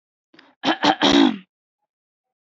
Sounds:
Throat clearing